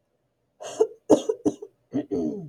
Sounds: Throat clearing